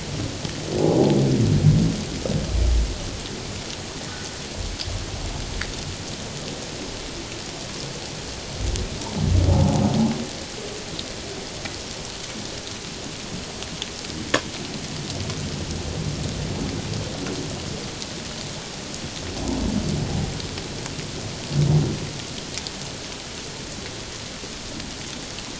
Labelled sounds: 9.5	9.8	humpback whale, 0.78 to 0.97 kHz

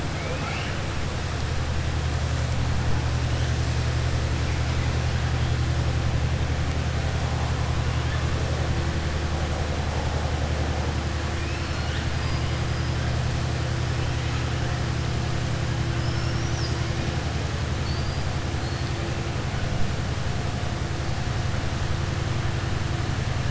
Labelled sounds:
0.1	0.8	killer whale, southern resident, 0.52 to 5.5 kHz
11.3	12.1	killer whale, southern resident, 1.9 to 5.4 kHz
15.9	16.8	killer whale, southern resident, 4.3 to 6.2 kHz

